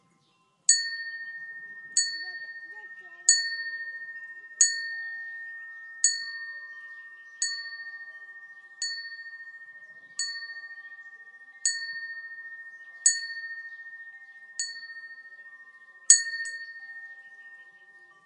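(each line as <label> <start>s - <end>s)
A bell chimes repeatedly with varying loudness. 0.6s - 18.0s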